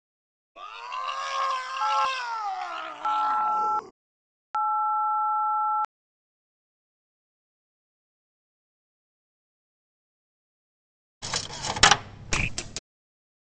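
At 0.55 seconds, someone screams. Meanwhile, at 1.8 seconds, the sound of a telephone is audible. Finally, at 11.21 seconds, a coin drops.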